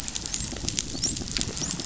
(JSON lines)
{"label": "biophony, dolphin", "recorder": "SoundTrap 500"}